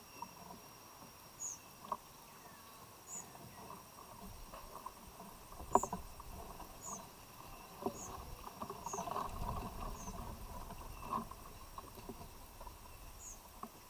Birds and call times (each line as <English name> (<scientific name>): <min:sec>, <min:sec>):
White-eyed Slaty-Flycatcher (Melaenornis fischeri): 0:06.7